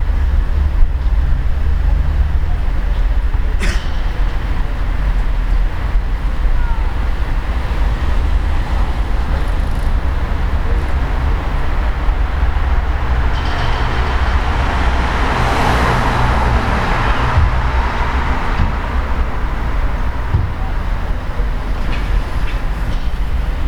Did someone cough?
yes